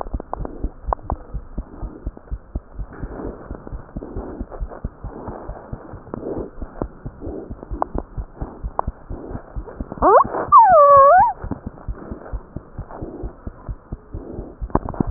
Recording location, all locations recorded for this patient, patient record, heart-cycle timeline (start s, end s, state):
tricuspid valve (TV)
aortic valve (AV)+pulmonary valve (PV)+tricuspid valve (TV)+mitral valve (MV)
#Age: Infant
#Sex: Male
#Height: 72.0 cm
#Weight: 8.3 kg
#Pregnancy status: False
#Murmur: Absent
#Murmur locations: nan
#Most audible location: nan
#Systolic murmur timing: nan
#Systolic murmur shape: nan
#Systolic murmur grading: nan
#Systolic murmur pitch: nan
#Systolic murmur quality: nan
#Diastolic murmur timing: nan
#Diastolic murmur shape: nan
#Diastolic murmur grading: nan
#Diastolic murmur pitch: nan
#Diastolic murmur quality: nan
#Outcome: Abnormal
#Campaign: 2015 screening campaign
0.00	1.18	unannotated
1.18	1.32	diastole
1.32	1.39	S1
1.39	1.55	systole
1.55	1.62	S2
1.62	1.82	diastole
1.82	1.90	S1
1.90	2.06	systole
2.06	2.14	S2
2.14	2.32	diastole
2.32	2.40	S1
2.40	2.54	systole
2.54	2.62	S2
2.62	2.78	diastole
2.78	2.88	S1
2.88	3.02	systole
3.02	3.12	S2
3.12	3.25	diastole
3.25	3.32	S1
3.32	3.49	systole
3.49	3.55	S2
3.55	3.72	diastole
3.72	3.77	S1
3.77	3.94	systole
3.94	4.00	S2
4.00	4.16	diastole
4.16	4.21	S1
4.21	4.40	systole
4.40	4.44	S2
4.44	4.60	diastole
4.60	4.70	S1
4.70	4.84	systole
4.84	4.92	S2
4.92	5.04	diastole
5.04	5.10	S1
5.10	5.27	systole
5.27	5.32	S2
5.32	5.47	diastole
5.47	5.53	S1
5.53	5.72	systole
5.72	5.77	S2
5.77	5.92	diastole
5.92	5.98	S1
5.98	6.12	systole
6.12	15.10	unannotated